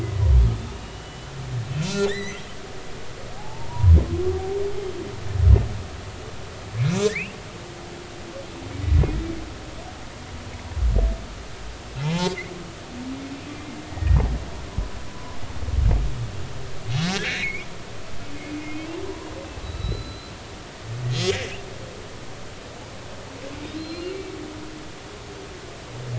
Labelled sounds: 0.7	2.4	humpback whale, 1.7 to 6.2 kHz
3.4	4.0	humpback whale, 0.80 to 1.1 kHz
6.9	7.4	humpback whale, 1.6 to 6.1 kHz
12.0	12.3	humpback whale, 0.80 to 2.2 kHz
13.9	14.2	humpback whale, 1.8 to 1.9 kHz
15.1	15.4	humpback whale, 0.96 to 1.1 kHz
17.0	17.7	humpback whale, 1.4 to 2.6 kHz
18.7	19.0	humpback whale, 2.4 to 2.8 kHz
19.6	20.4	humpback whale, 1.3 to 4.2 kHz
23.7	24.2	humpback whale, 4.0 to 4.3 kHz

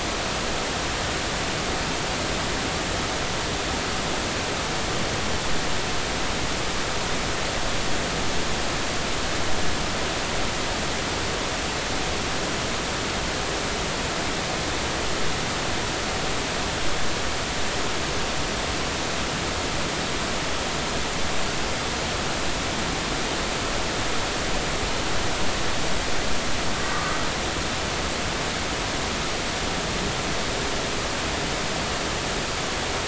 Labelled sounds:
26.9	27.2	humpback whale, 1.1 to 1.3 kHz

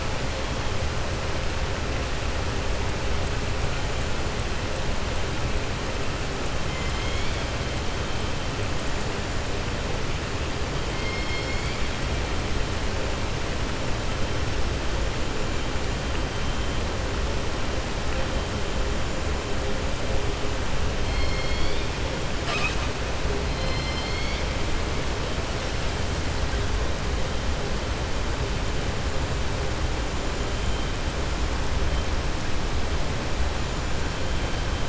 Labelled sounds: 6.7	7.4	killer whale, southern resident, 2.0 to 4.5 kHz
10.9	11.9	killer whale, southern resident, 2.1 to 5.4 kHz
21.0	21.9	killer whale, southern resident, 2.1 to 5.3 kHz

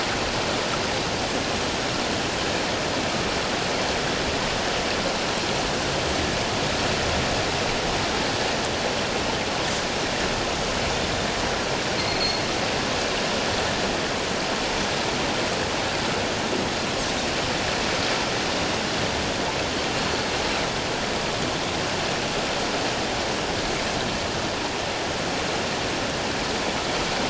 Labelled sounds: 12.1	12.4	Pacific white-sided dolphin, 4.2 to 4.4 kHz
20.0	20.3	Pacific white-sided dolphin, 4.3 to 4.5 kHz

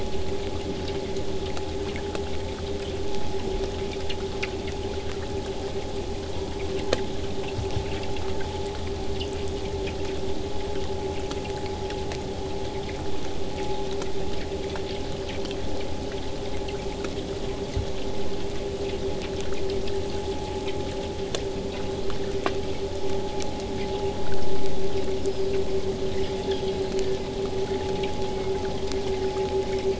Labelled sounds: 10.0	15.0	vessel noise, 0 to 8.0 kHz

